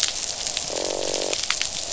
{"label": "biophony, croak", "recorder": "SoundTrap 500"}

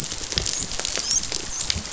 {"label": "biophony, dolphin", "recorder": "SoundTrap 500"}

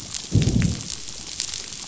{"label": "biophony, growl", "recorder": "SoundTrap 500"}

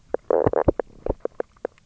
{"label": "biophony, knock croak", "recorder": "SoundTrap 300"}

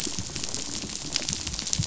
{"label": "biophony, rattle", "recorder": "SoundTrap 500"}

